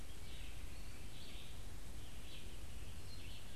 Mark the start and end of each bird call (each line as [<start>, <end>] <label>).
[0.00, 1.63] Scarlet Tanager (Piranga olivacea)
[0.00, 3.56] Red-eyed Vireo (Vireo olivaceus)